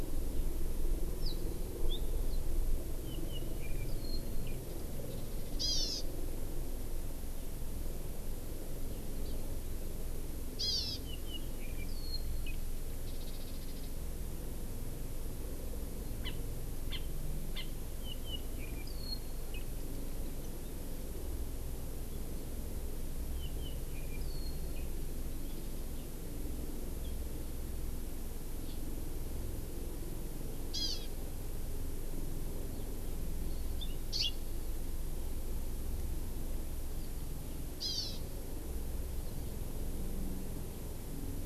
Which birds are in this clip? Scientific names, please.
Himatione sanguinea, Chlorodrepanis virens